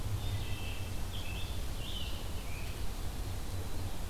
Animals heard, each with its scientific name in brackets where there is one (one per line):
Wood Thrush (Hylocichla mustelina)
Scarlet Tanager (Piranga olivacea)